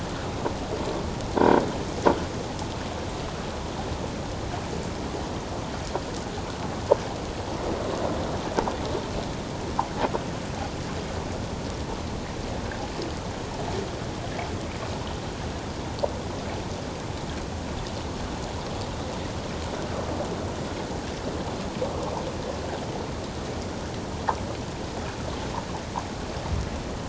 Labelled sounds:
1.3	1.6	croaking sound likely from a nearby submerged object, 1.4 to 1.6 kHz

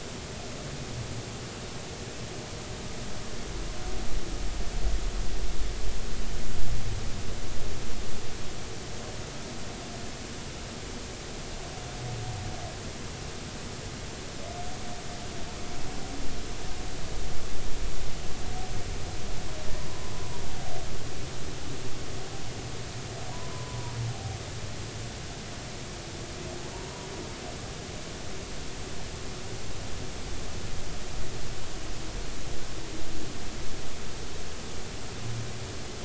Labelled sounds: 23.3	23.9	humpback whale, 0.90 to 1.1 kHz
26.7	27.1	humpback whale, 0.90 to 1.0 kHz

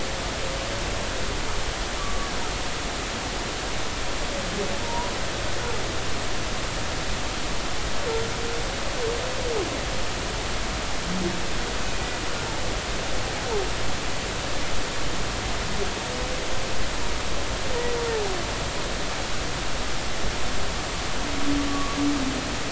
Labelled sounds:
2.0	2.3	humpback whale, 1.1 to 1.2 kHz
4.8	5.1	humpback whale, 0.86 to 1.0 kHz
21.7	22.0	humpback whale, 1.1 to 1.2 kHz

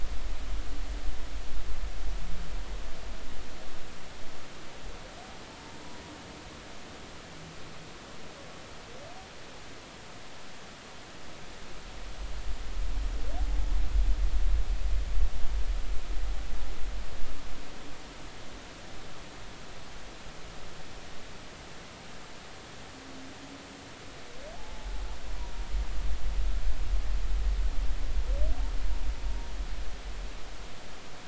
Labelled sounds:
24.5	24.9	humpback whale, 0.80 to 0.93 kHz

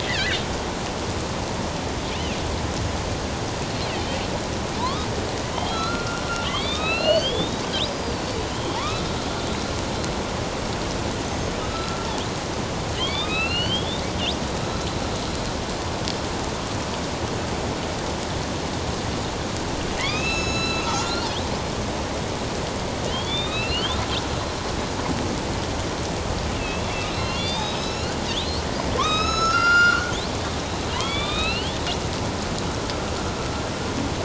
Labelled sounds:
0.0	0.4	killer whale, northern resident, A clan, AB subclan, 1.5 to 3.0 kHz
4.8	7.6	killer whale, northern resident, A clan, AB subclan, 0.88 to 4.9 kHz
7.9	9.0	killer whale, northern resident, A clan, AB subclan, 0.81 to 5.0 kHz
11.2	12.1	killer whale, northern resident, A clan, AB subclan, 1.3 to 6.6 kHz
12.9	14.0	killer whale, northern resident, A clan, AB subclan, 1.1 to 4.8 kHz
20.0	21.3	killer whale, northern resident, A clan, AB subclan, 1.2 to 8.0 kHz
23.1	24.0	killer whale, northern resident, A clan, AB subclan, 2.2 to 4.6 kHz
26.6	28.6	killer whale, northern resident, A clan, AB subclan, 1.3 to 7.0 kHz
29.0	30.1	killer whale, northern resident, A clan, AB subclan, 0.97 to 7.8 kHz
30.9	31.8	killer whale, northern resident, A clan, AB subclan, 1.1 to 4.4 kHz

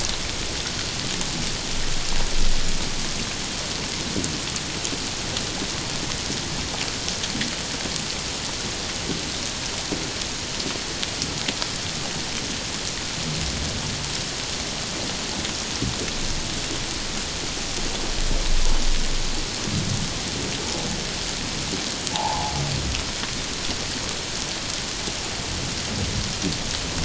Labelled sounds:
22.1	22.5	humpback whale, 0.78 to 1.1 kHz

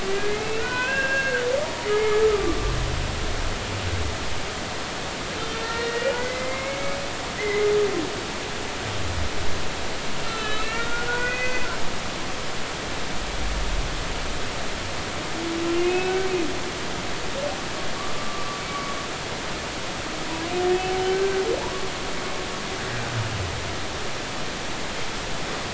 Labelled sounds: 0.3	2.6	humpback whale, 0.93 to 3.1 kHz
5.5	7.0	humpback whale, 1.0 to 2.9 kHz
7.4	7.7	humpback whale, 1.9 to 2.2 kHz
10.2	11.7	humpback whale, 1.2 to 4.6 kHz
15.7	16.3	humpback whale, 1.4 to 2.9 kHz
18.3	19.0	humpback whale, 1.1 to 1.2 kHz
21.1	21.4	humpback whale, 1.5 to 1.6 kHz

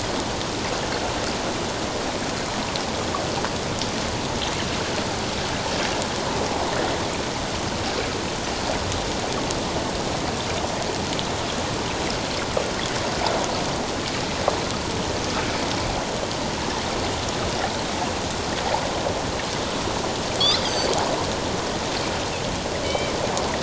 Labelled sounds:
20.4	20.9	Pacific white-sided dolphin, 3.2 to 6.4 kHz
22.8	23.1	Pacific white-sided dolphin, 2.2 to 3.2 kHz

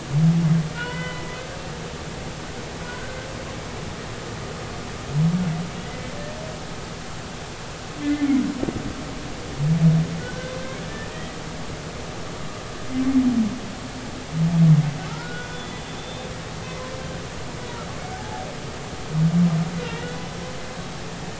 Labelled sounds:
0.7	1.4	humpback whale, 0.93 to 3.1 kHz
3.8	4.2	humpback whale, 1.4 to 1.6 kHz
5.8	6.1	humpback whale, 1.9 to 2.1 kHz
8.0	8.3	humpback whale, 1.7 to 1.8 kHz
10.2	10.5	humpback whale, 1.4 to 1.7 kHz
10.9	11.4	humpback whale, 1.7 to 2.0 kHz
15.1	16.3	humpback whale, 1.2 to 3.6 kHz
18.1	18.5	humpback whale, 0.80 to 0.90 kHz
19.9	20.2	humpback whale, 1.8 to 2.0 kHz

